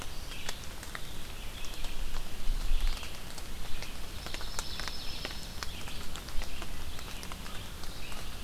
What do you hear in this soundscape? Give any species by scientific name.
Vireo olivaceus, Junco hyemalis